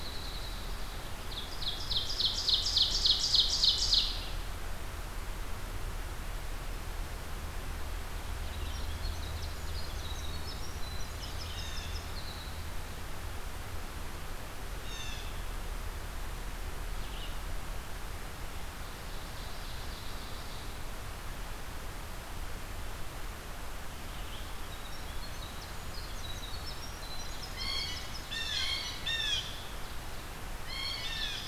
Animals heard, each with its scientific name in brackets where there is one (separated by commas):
Red-eyed Vireo (Vireo olivaceus), Blue Jay (Cyanocitta cristata), Ovenbird (Seiurus aurocapilla), Winter Wren (Troglodytes hiemalis)